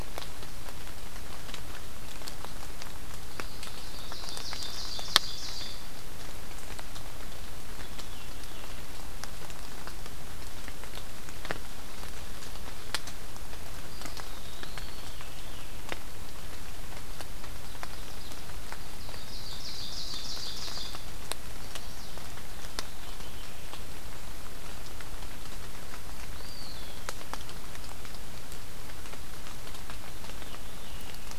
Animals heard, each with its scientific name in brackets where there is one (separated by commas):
Eastern Wood-Pewee (Contopus virens), Chestnut-sided Warbler (Setophaga pensylvanica), Veery (Catharus fuscescens), Ovenbird (Seiurus aurocapilla)